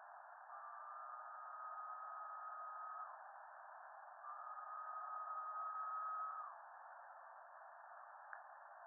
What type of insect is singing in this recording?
cicada